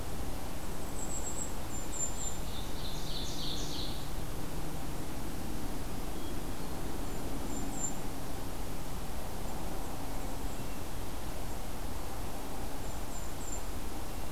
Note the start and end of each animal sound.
0.7s-2.4s: Golden-crowned Kinglet (Regulus satrapa)
1.9s-4.2s: Ovenbird (Seiurus aurocapilla)
6.0s-7.0s: Hermit Thrush (Catharus guttatus)
6.9s-8.1s: Golden-crowned Kinglet (Regulus satrapa)
12.8s-13.8s: Golden-crowned Kinglet (Regulus satrapa)

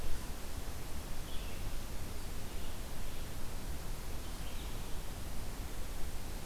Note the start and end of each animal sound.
1.2s-6.5s: Red-eyed Vireo (Vireo olivaceus)

